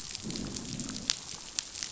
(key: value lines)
label: biophony, growl
recorder: SoundTrap 500